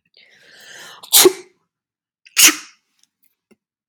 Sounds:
Sneeze